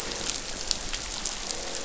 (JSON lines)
{"label": "biophony, croak", "recorder": "SoundTrap 500"}